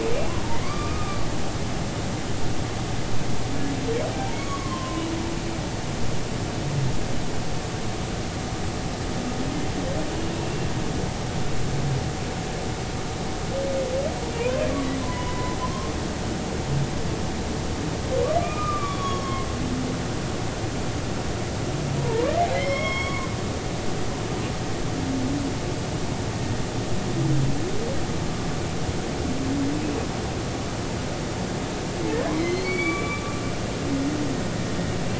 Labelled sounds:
0.5	1.2	humpback whale, 1.0 to 4.8 kHz
4.1	5.1	humpback whale, 0.80 to 6.8 kHz
14.3	14.7	humpback whale, 0.90 to 2.7 kHz
15.0	15.9	humpback whale, 0.93 to 3.0 kHz
18.4	19.5	humpback whale, 1.0 to 6.7 kHz
22.0	23.3	humpback whale, 0.86 to 5.5 kHz
32.3	33.3	humpback whale, 1.1 to 4.6 kHz

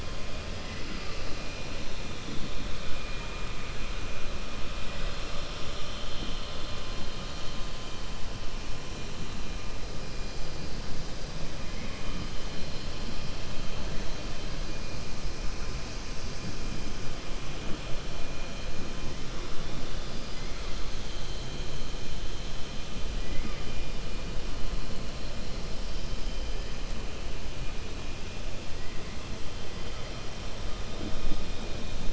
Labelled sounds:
4.8	5.3	killer whale, 0.68 to 3.4 kHz

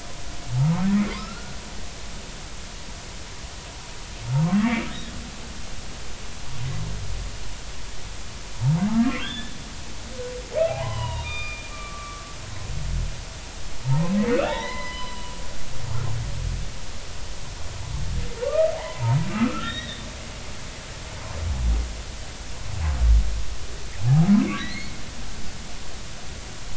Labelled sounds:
0.5	1.6	humpback whale, 0.83 to 2.5 kHz
9.0	9.5	humpback whale, 1.4 to 3.6 kHz
10.7	12.4	humpback whale, 0.80 to 4.9 kHz
13.8	15.3	humpback whale, 0.80 to 5.2 kHz
18.4	20.1	humpback whale, 0.80 to 3.9 kHz
24.0	24.3	humpback whale, 0.80 to 0.90 kHz
24.6	25.0	humpback whale, 1.8 to 4.4 kHz

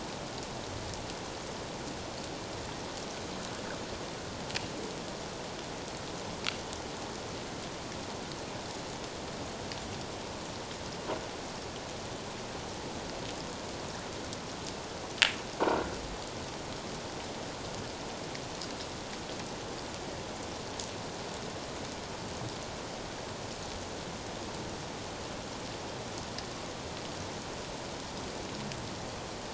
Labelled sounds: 15.6	15.9	croaking sound likely from a nearby submerged object, 1.3 to 1.5 kHz

